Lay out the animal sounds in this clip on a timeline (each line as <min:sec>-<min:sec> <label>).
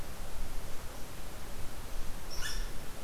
0:02.3-0:02.7 Red Squirrel (Tamiasciurus hudsonicus)